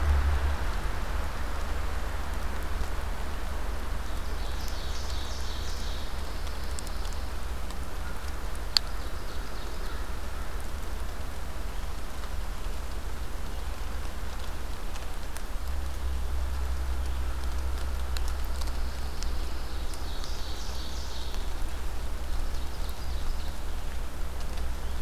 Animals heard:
Ovenbird (Seiurus aurocapilla), Pine Warbler (Setophaga pinus)

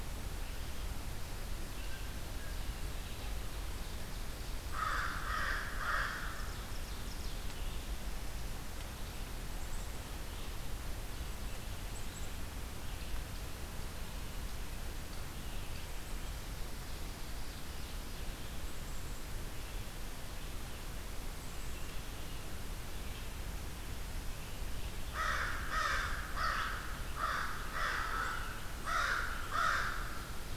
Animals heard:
Blue Jay (Cyanocitta cristata), Black-capped Chickadee (Poecile atricapillus), Ovenbird (Seiurus aurocapilla), American Crow (Corvus brachyrhynchos), Red-eyed Vireo (Vireo olivaceus)

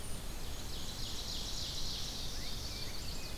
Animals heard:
Rose-breasted Grosbeak (Pheucticus ludovicianus), Ovenbird (Seiurus aurocapilla), Black-and-white Warbler (Mniotilta varia), Chestnut-sided Warbler (Setophaga pensylvanica)

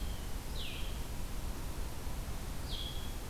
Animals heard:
Blue-headed Vireo (Vireo solitarius)

